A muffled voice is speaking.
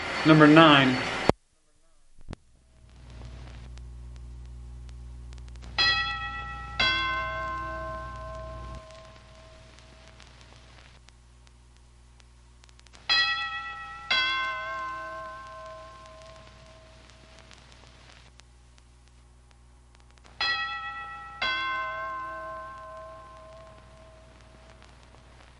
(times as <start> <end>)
0.0 1.3